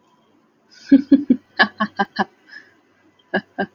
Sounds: Laughter